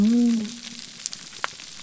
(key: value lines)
label: biophony
recorder: SoundTrap 300